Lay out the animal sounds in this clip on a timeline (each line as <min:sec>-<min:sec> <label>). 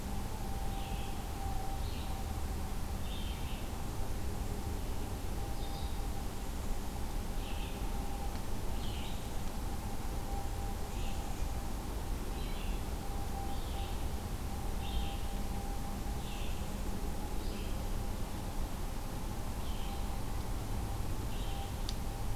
0:00.5-0:22.4 Red-eyed Vireo (Vireo olivaceus)